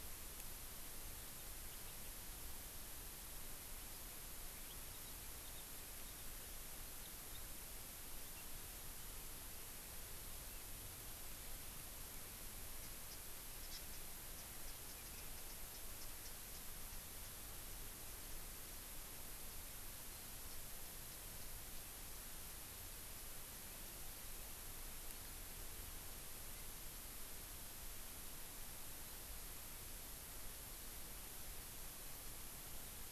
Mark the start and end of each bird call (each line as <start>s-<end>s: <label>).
12.8s-13.2s: Japanese Bush Warbler (Horornis diphone)
13.7s-13.8s: Hawaii Amakihi (Chlorodrepanis virens)
14.3s-16.6s: Japanese Bush Warbler (Horornis diphone)
16.9s-17.3s: Japanese Bush Warbler (Horornis diphone)
21.1s-21.9s: Japanese Bush Warbler (Horornis diphone)